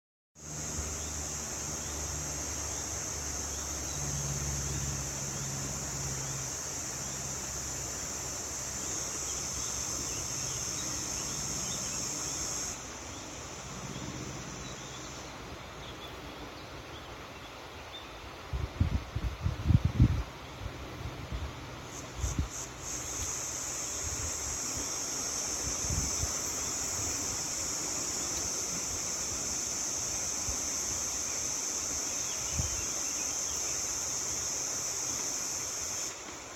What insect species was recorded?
Tibicina haematodes